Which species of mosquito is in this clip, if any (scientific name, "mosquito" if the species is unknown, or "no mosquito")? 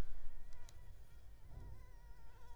Anopheles arabiensis